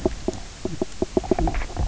{"label": "biophony, knock croak", "recorder": "SoundTrap 300"}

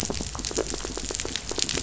{"label": "biophony, rattle", "recorder": "SoundTrap 500"}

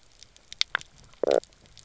{"label": "biophony, knock croak", "recorder": "SoundTrap 300"}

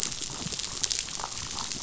{"label": "biophony, damselfish", "recorder": "SoundTrap 500"}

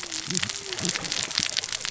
{"label": "biophony, cascading saw", "recorder": "SoundTrap 600 or HydroMoth"}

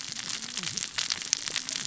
{"label": "biophony, cascading saw", "recorder": "SoundTrap 600 or HydroMoth"}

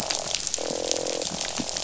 {"label": "biophony, croak", "recorder": "SoundTrap 500"}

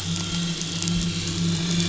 {"label": "anthrophony, boat engine", "recorder": "SoundTrap 500"}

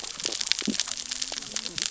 {"label": "biophony, cascading saw", "recorder": "SoundTrap 600 or HydroMoth"}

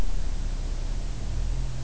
{"label": "biophony", "recorder": "SoundTrap 300"}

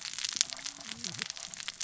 {"label": "biophony, cascading saw", "recorder": "SoundTrap 600 or HydroMoth"}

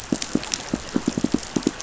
{"label": "biophony, pulse", "recorder": "SoundTrap 500"}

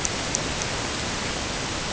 {"label": "ambient", "recorder": "HydroMoth"}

